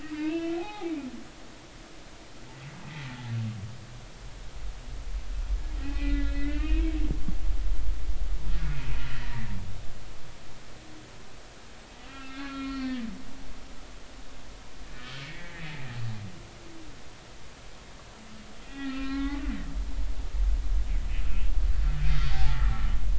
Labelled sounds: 0.0	1.5	humpback whale, 0.80 to 3.8 kHz
5.8	6.9	humpback whale, 1.4 to 2.9 kHz
7.1	7.4	humpback whale, 1.6 to 1.8 kHz
9.1	9.4	humpback whale, 1.7 to 2.0 kHz
12.0	13.7	humpback whale, 1.3 to 4.5 kHz
15.0	15.6	humpback whale, 1.7 to 3.3 kHz
18.6	19.5	humpback whale, 1.0 to 3.4 kHz
22.0	22.7	humpback whale, 0.80 to 4.8 kHz

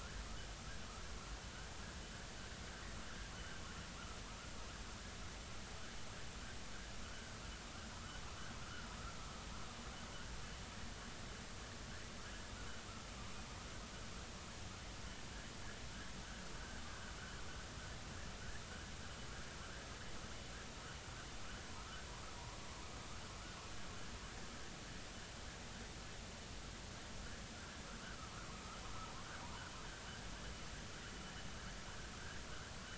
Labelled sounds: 7.0	7.3	vessel noise, 1.3 to 1.6 kHz
8.0	8.2	vessel noise, 1.2 to 1.6 kHz
28.0	28.3	vessel noise, 1.1 to 1.6 kHz

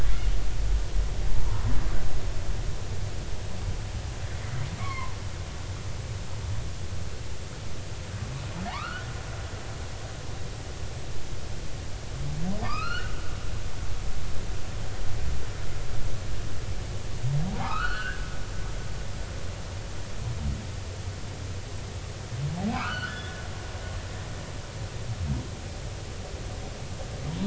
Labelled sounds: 1.5	1.7	humpback whale, 0.90 to 1.1 kHz
4.8	5.2	humpback whale, 0.86 to 2.3 kHz
8.7	9.1	humpback whale, 0.80 to 3.0 kHz
12.6	13.1	humpback whale, 0.90 to 5.2 kHz
17.5	18.3	humpback whale, 0.80 to 4.2 kHz
22.7	23.4	humpback whale, 0.93 to 3.8 kHz

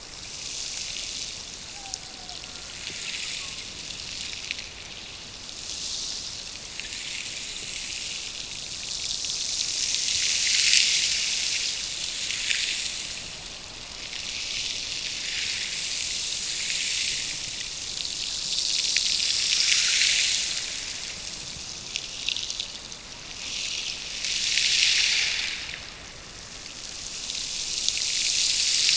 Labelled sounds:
1.6	3.9	killer whale, Bigg's (transient), Gulf of Alaska transient, 0.53 to 1.7 kHz

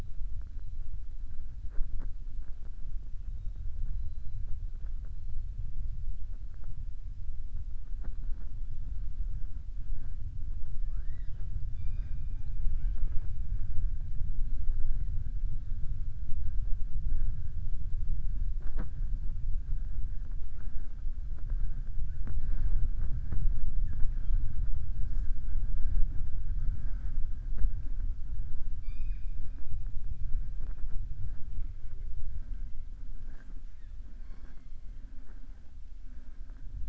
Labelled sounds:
28.7	29.4	killer whale, southern resident, 1.7 to 5.0 kHz

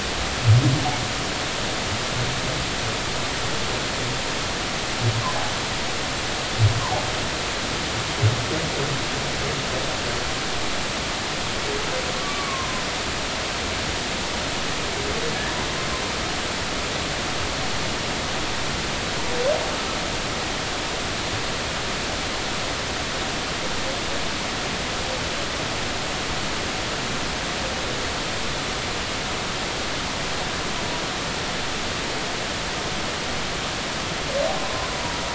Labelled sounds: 6.8	7.0	humpback whale, 0.80 to 1.2 kHz
12.1	12.8	humpback whale, 0.93 to 1.2 kHz
34.6	34.9	humpback whale, 0.96 to 1.1 kHz

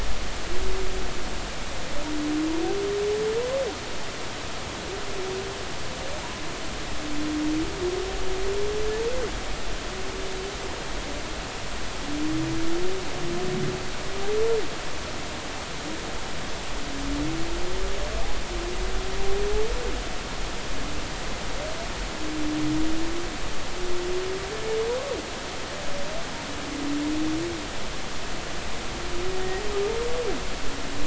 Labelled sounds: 29.3	29.6	humpback whale, 1.8 to 2.0 kHz

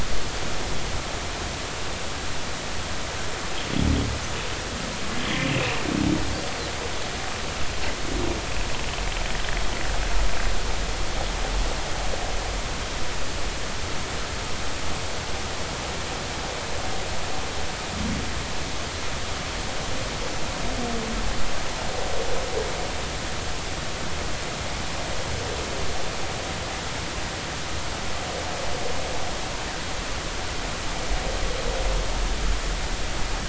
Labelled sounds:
5.5	5.8	humpback whale, 2.4 to 2.8 kHz

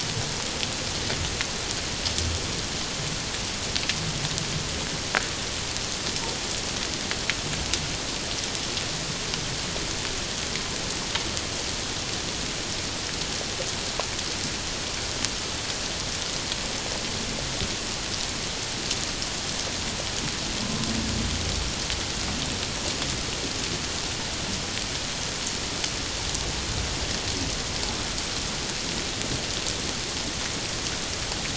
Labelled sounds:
20.6	20.9	humpback whale, 1.0 to 1.1 kHz

